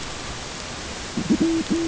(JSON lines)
{"label": "ambient", "recorder": "HydroMoth"}